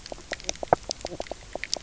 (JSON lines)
{"label": "biophony, knock croak", "recorder": "SoundTrap 300"}